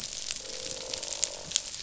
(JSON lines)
{"label": "biophony, croak", "recorder": "SoundTrap 500"}